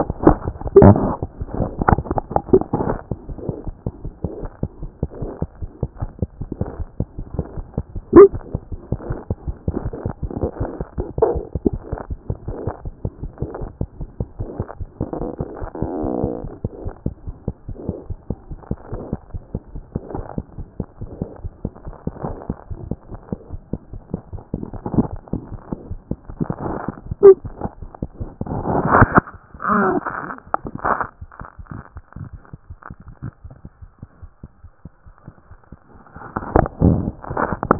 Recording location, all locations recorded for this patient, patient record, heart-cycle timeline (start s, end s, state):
aortic valve (AV)
aortic valve (AV)+mitral valve (MV)
#Age: Infant
#Sex: Male
#Height: 47.0 cm
#Weight: 3.5 kg
#Pregnancy status: False
#Murmur: Absent
#Murmur locations: nan
#Most audible location: nan
#Systolic murmur timing: nan
#Systolic murmur shape: nan
#Systolic murmur grading: nan
#Systolic murmur pitch: nan
#Systolic murmur quality: nan
#Diastolic murmur timing: nan
#Diastolic murmur shape: nan
#Diastolic murmur grading: nan
#Diastolic murmur pitch: nan
#Diastolic murmur quality: nan
#Outcome: Normal
#Campaign: 2014 screening campaign
0.00	3.30	unannotated
3.30	3.36	S1
3.36	3.48	systole
3.48	3.54	S2
3.54	3.66	diastole
3.66	3.74	S1
3.74	3.84	systole
3.84	3.90	S2
3.90	4.05	diastole
4.05	4.12	S1
4.12	4.23	systole
4.23	4.29	S2
4.29	4.42	diastole
4.42	4.50	S1
4.50	4.62	systole
4.62	4.68	S2
4.68	4.82	diastole
4.82	4.88	S1
4.88	5.01	systole
5.01	5.07	S2
5.07	5.22	diastole
5.22	5.29	S1
5.29	5.42	systole
5.42	5.48	S2
5.48	5.62	diastole
5.62	5.70	S1
5.70	5.82	systole
5.82	5.86	S2
5.86	6.00	diastole
6.00	6.09	S1
6.09	6.22	systole
6.22	6.28	S2
6.28	6.42	diastole
6.42	37.79	unannotated